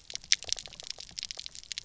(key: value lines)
label: biophony, pulse
recorder: SoundTrap 300